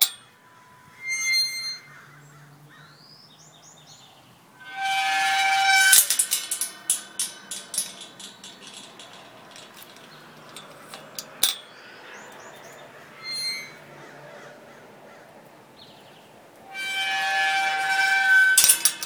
does a gate open?
yes